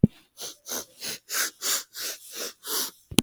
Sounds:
Sniff